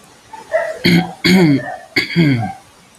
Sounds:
Throat clearing